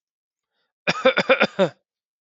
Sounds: Cough